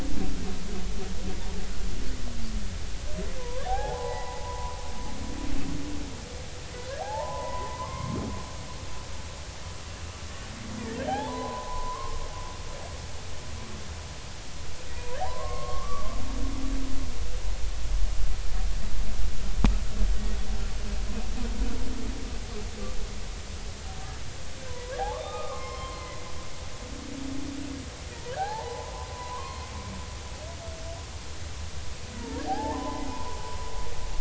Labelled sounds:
3.4	4.8	humpback whale, 0.80 to 2.0 kHz
6.9	8.2	humpback whale, 0.80 to 2.2 kHz
10.8	12.2	humpback whale, 0.80 to 2.0 kHz
14.9	16.1	humpback whale, 0.80 to 1.2 kHz
24.7	26.2	humpback whale, 0.93 to 5.3 kHz
28.3	29.7	humpback whale, 0.80 to 4.3 kHz
32.2	33.4	humpback whale, 0.80 to 1.9 kHz

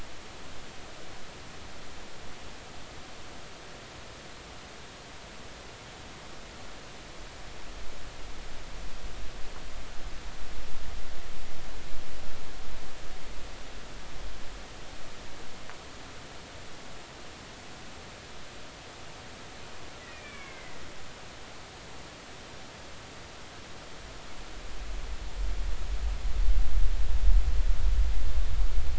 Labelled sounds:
20.1	20.9	killer whale, Bigg's (transient), 1.1 to 2.6 kHz

